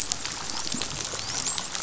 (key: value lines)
label: biophony, dolphin
recorder: SoundTrap 500